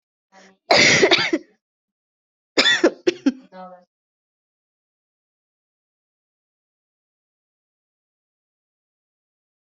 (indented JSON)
{
  "expert_labels": [
    {
      "quality": "ok",
      "cough_type": "dry",
      "dyspnea": false,
      "wheezing": false,
      "stridor": false,
      "choking": false,
      "congestion": false,
      "nothing": true,
      "diagnosis": "COVID-19",
      "severity": "mild"
    }
  ],
  "age": 18,
  "gender": "female",
  "respiratory_condition": false,
  "fever_muscle_pain": true,
  "status": "COVID-19"
}